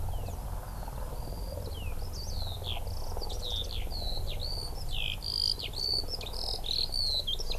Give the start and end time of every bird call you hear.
[0.69, 7.59] Eurasian Skylark (Alauda arvensis)

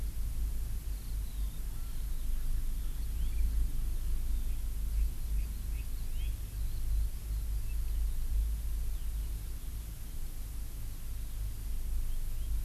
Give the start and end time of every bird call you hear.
[0.90, 7.40] Eurasian Skylark (Alauda arvensis)

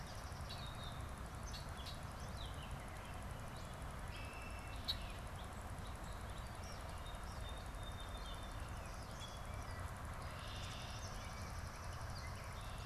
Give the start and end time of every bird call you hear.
[0.00, 0.77] Swamp Sparrow (Melospiza georgiana)
[0.00, 12.85] Gray Catbird (Dumetella carolinensis)
[0.47, 2.07] Red-winged Blackbird (Agelaius phoeniceus)
[3.87, 5.17] Red-winged Blackbird (Agelaius phoeniceus)
[6.77, 9.67] Song Sparrow (Melospiza melodia)
[9.97, 12.77] Swamp Sparrow (Melospiza georgiana)
[9.97, 12.85] Red-winged Blackbird (Agelaius phoeniceus)

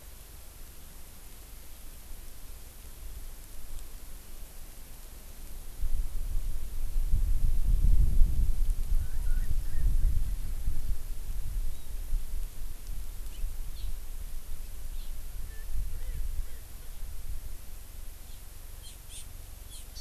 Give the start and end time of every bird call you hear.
[9.00, 10.40] Erckel's Francolin (Pternistis erckelii)
[15.50, 16.90] Erckel's Francolin (Pternistis erckelii)
[18.80, 19.30] Hawaii Amakihi (Chlorodrepanis virens)
[19.70, 19.90] Hawaii Amakihi (Chlorodrepanis virens)

